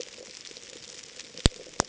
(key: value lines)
label: ambient
recorder: HydroMoth